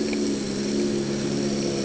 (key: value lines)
label: anthrophony, boat engine
recorder: HydroMoth